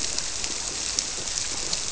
{"label": "biophony", "recorder": "SoundTrap 300"}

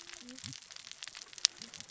{"label": "biophony, cascading saw", "recorder": "SoundTrap 600 or HydroMoth"}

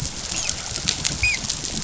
{"label": "biophony, dolphin", "recorder": "SoundTrap 500"}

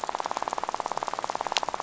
{"label": "biophony, rattle", "recorder": "SoundTrap 500"}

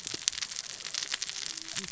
{"label": "biophony, cascading saw", "recorder": "SoundTrap 600 or HydroMoth"}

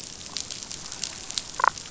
{"label": "biophony, damselfish", "recorder": "SoundTrap 500"}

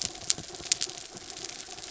{"label": "anthrophony, mechanical", "recorder": "SoundTrap 300"}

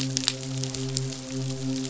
{"label": "biophony, midshipman", "recorder": "SoundTrap 500"}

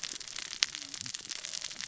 {"label": "biophony, cascading saw", "recorder": "SoundTrap 600 or HydroMoth"}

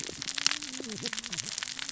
{"label": "biophony, cascading saw", "recorder": "SoundTrap 600 or HydroMoth"}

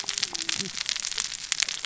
{"label": "biophony, cascading saw", "recorder": "SoundTrap 600 or HydroMoth"}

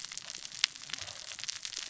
{"label": "biophony, cascading saw", "recorder": "SoundTrap 600 or HydroMoth"}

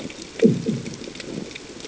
{"label": "anthrophony, bomb", "recorder": "HydroMoth"}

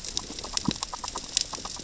{"label": "biophony, grazing", "recorder": "SoundTrap 600 or HydroMoth"}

